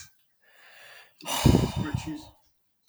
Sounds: Sigh